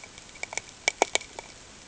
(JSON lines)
{"label": "ambient", "recorder": "HydroMoth"}